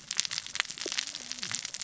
{"label": "biophony, cascading saw", "recorder": "SoundTrap 600 or HydroMoth"}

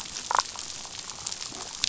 {"label": "biophony, damselfish", "recorder": "SoundTrap 500"}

